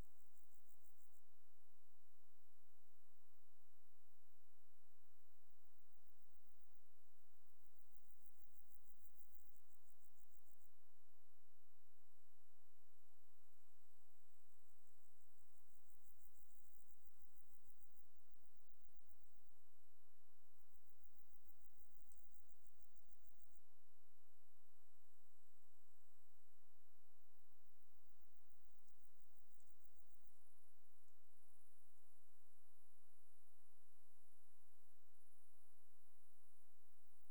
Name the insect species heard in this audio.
Pseudochorthippus parallelus